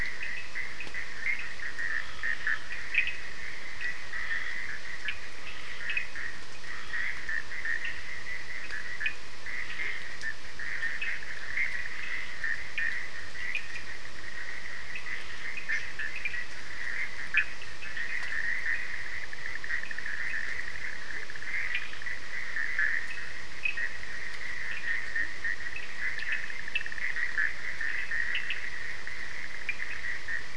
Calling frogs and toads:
Bischoff's tree frog, Cochran's lime tree frog, Scinax perereca
Atlantic Forest, 2:00am

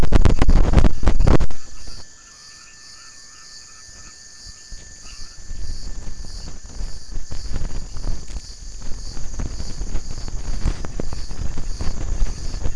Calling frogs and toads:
none
Atlantic Forest, 7:15pm

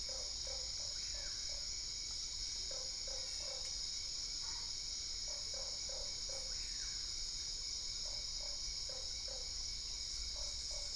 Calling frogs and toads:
Usina tree frog, brown-spotted dwarf frog, Boana albopunctata
Cerrado, 8:30pm

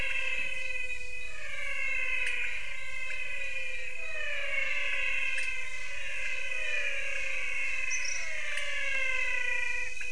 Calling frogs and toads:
pointedbelly frog, menwig frog
Brazil, 6:30pm

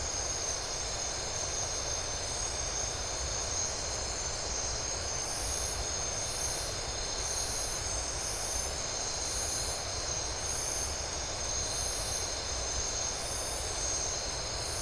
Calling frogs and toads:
none
Atlantic Forest, 3:00am

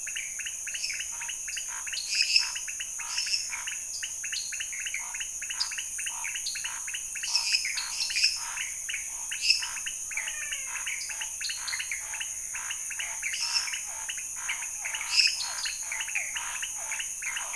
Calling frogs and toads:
pointedbelly frog, lesser tree frog, Scinax fuscovarius, dwarf tree frog, menwig frog, Physalaemus cuvieri
Cerrado, 11:00pm

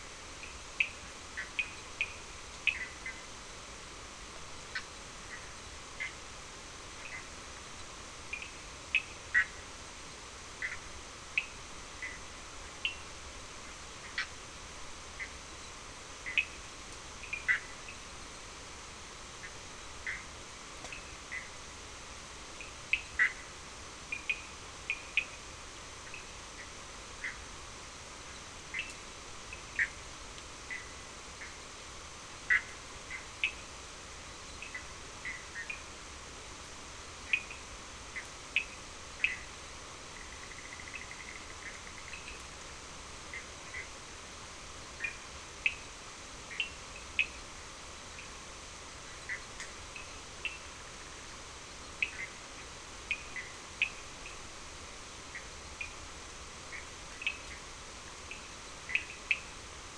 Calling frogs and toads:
Cochran's lime tree frog, Bischoff's tree frog
Atlantic Forest, 4:15am

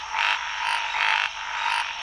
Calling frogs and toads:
Scinax fuscovarius
Cerrado, 4am

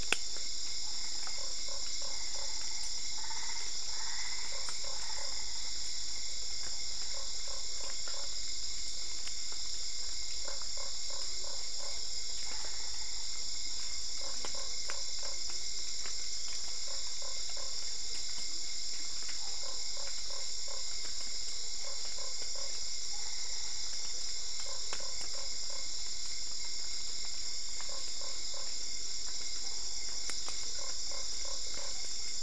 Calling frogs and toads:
Usina tree frog, Boana albopunctata
Cerrado, 9:00pm

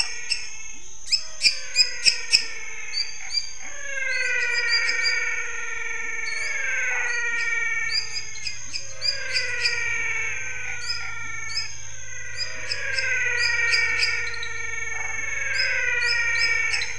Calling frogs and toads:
lesser tree frog, pepper frog, menwig frog, Chaco tree frog, waxy monkey tree frog
Cerrado, 7:30pm

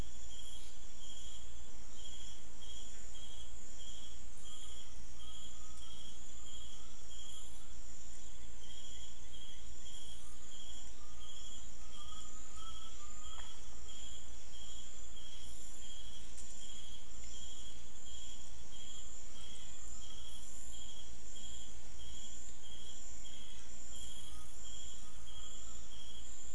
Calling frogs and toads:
menwig frog
Brazil, 6pm

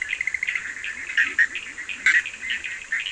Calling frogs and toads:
Bischoff's tree frog, Cochran's lime tree frog, Leptodactylus latrans
Brazil, 12:30am

